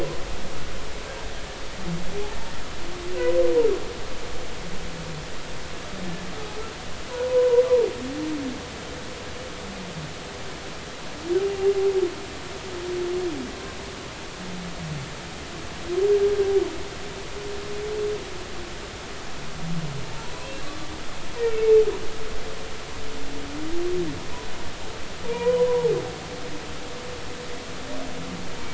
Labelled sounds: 7.3	7.6	humpback whale, 0.90 to 1.1 kHz
12.4	12.7	humpback whale, 2.7 to 2.8 kHz
25.3	25.9	humpback whale, 0.80 to 2.5 kHz

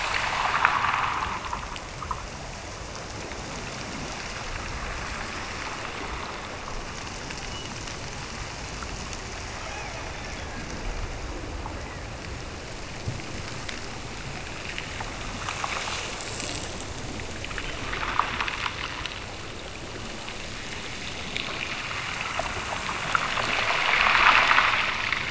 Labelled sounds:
9.6	10.7	killer whale, Bigg's (transient), Gulf of Alaska transient, 0.50 to 2.8 kHz

